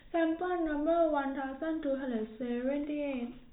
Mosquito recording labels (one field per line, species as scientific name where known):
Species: no mosquito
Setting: cup